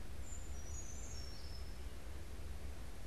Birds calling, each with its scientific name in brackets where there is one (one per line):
Brown Creeper (Certhia americana)